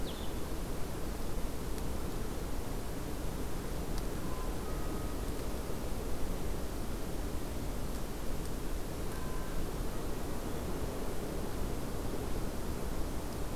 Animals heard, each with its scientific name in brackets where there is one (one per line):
Blue-headed Vireo (Vireo solitarius)